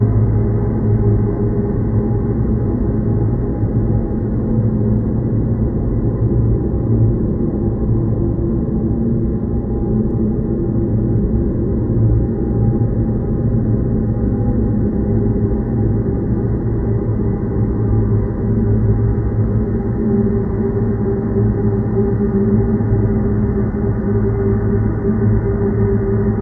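0.1s A continuous hollow droning machine noise. 26.4s

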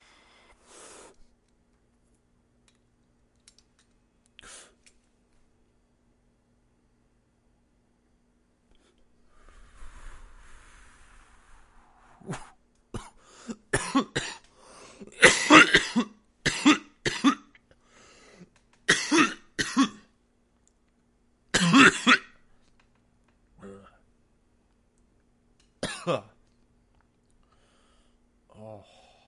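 0.0s Someone inhales the smoke of a tobacco product. 1.2s
2.6s Quiet sound of a metallic lighter being fiddled with. 4.6s
4.3s A sharp inhale through the mouth. 5.0s
8.8s Exhaling smoke from a tobacco product. 12.4s
12.3s Inconsistent dry coughs that are not very aggressive. 20.0s
21.4s Aggressive dry coughing. 22.3s
23.5s A random human-made quiet sound. 24.2s
25.8s A small cough. 26.2s
28.5s A painful sigh of relief follows a chain of coughs. 29.3s

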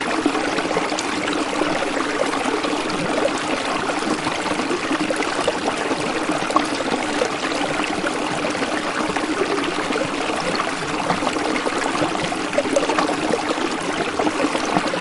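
0.0s The engine of a motorboat whirs. 15.0s
0.0s Water gurgling. 15.0s

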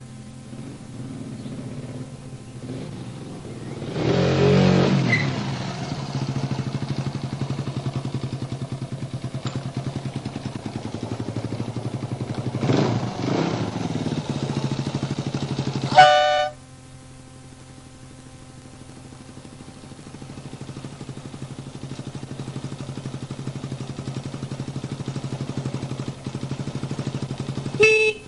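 0.4s An engine emits a rhythmic, revving sound with sudden, random changes in volume and pitch. 16.0s
15.8s A vehicle horn emits a loud, short, high-pitched honk that quickly fades. 16.6s
19.5s An engine revs with a steady rhythm at a medium volume. 27.7s
27.7s A vehicle horn emits a loud, short, steady honk that quickly fades. 28.3s

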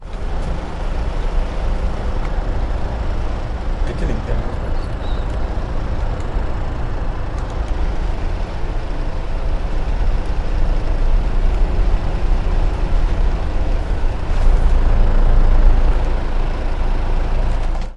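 0.0s An engine growls consistently, becoming louder toward the end. 18.0s
3.8s A person is speaking faintly. 5.1s

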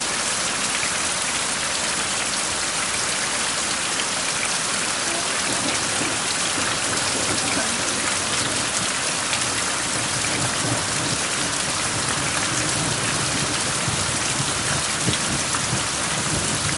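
0.0s Heavy rain with strong, steady rainfall and occasional dripping sounds. 16.8s

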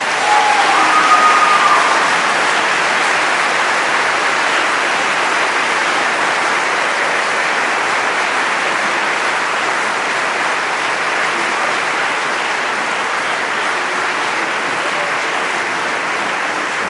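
0.0s A crowd is applauding loudly. 16.9s
0.2s A crowd cheers and screams. 2.0s

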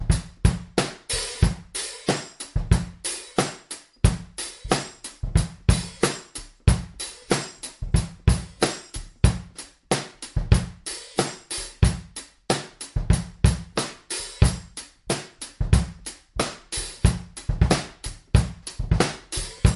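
0.0s A person is playing the drums. 19.8s

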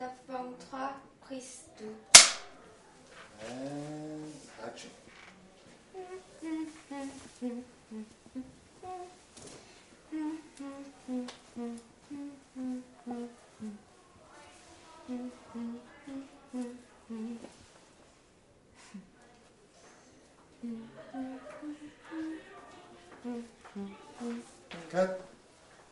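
0.0s A woman speaks quietly and from a distance indoors. 2.1s
2.1s A loud, sharp click is heard indoors. 2.3s
3.4s A man speaks quietly and distantly, gradually speeding up. 5.4s
6.0s A woman hums rhythmically and quietly in the distance. 17.9s
20.6s A woman hums rhythmically and quietly in the distance. 25.9s
21.2s Women laugh quietly and repetitively in the distance. 23.4s
24.9s A man exclaims loudly from a distance. 25.2s

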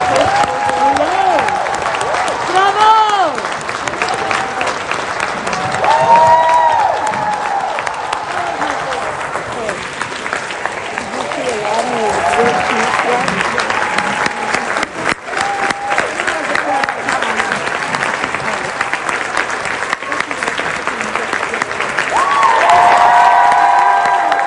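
0.0s Crowd cheering and clapping rhythmically. 2.5s
2.5s A man is yelling. 3.5s
3.5s Crowd cheering and clapping rhythmically. 5.6s
5.6s A crowd of people cheering, yelling, applauding, and clapping. 7.4s
7.5s Crowd cheering and clapping rhythmically. 11.2s
11.3s Muffled talking with a crowd rhythmically cheering, applauding, and clapping in the background. 22.1s
22.2s A crowd of people cheering, yelling, applauding, and clapping. 24.5s

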